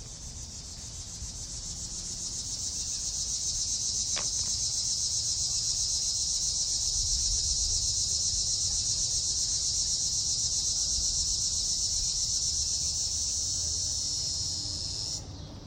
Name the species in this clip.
Neotibicen linnei